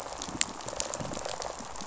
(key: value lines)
label: biophony, rattle response
recorder: SoundTrap 500